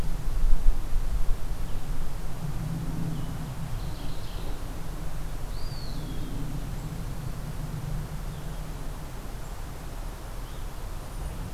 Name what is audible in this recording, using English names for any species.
Mourning Warbler, Eastern Wood-Pewee